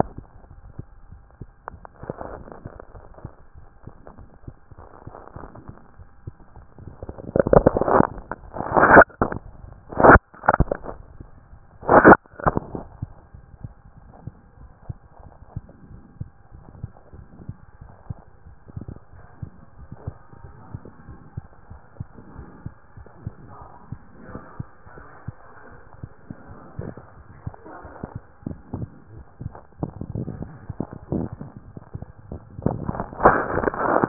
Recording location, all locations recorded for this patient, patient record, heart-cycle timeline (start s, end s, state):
mitral valve (MV)
pulmonary valve (PV)+tricuspid valve (TV)+mitral valve (MV)
#Age: Child
#Sex: Male
#Height: 140.0 cm
#Weight: 33.7 kg
#Pregnancy status: False
#Murmur: Present
#Murmur locations: tricuspid valve (TV)
#Most audible location: tricuspid valve (TV)
#Systolic murmur timing: Early-systolic
#Systolic murmur shape: Decrescendo
#Systolic murmur grading: I/VI
#Systolic murmur pitch: Low
#Systolic murmur quality: Blowing
#Diastolic murmur timing: nan
#Diastolic murmur shape: nan
#Diastolic murmur grading: nan
#Diastolic murmur pitch: nan
#Diastolic murmur quality: nan
#Outcome: Normal
#Campaign: 2014 screening campaign
0.00	14.57	unannotated
14.57	14.66	S1
14.66	14.88	systole
14.88	14.95	S2
14.95	15.20	diastole
15.20	15.28	S1
15.28	15.56	systole
15.56	15.62	S2
15.62	15.89	diastole
15.89	15.97	S1
15.97	16.20	systole
16.20	16.28	S2
16.28	16.51	diastole
16.51	16.60	S1
16.60	16.82	systole
16.82	16.89	S2
16.89	17.13	diastole
17.13	17.22	S1
17.22	17.47	systole
17.47	17.55	S2
17.55	17.80	diastole
17.80	17.88	S1
17.88	18.08	systole
18.08	18.16	S2
18.16	18.44	diastole
18.44	34.08	unannotated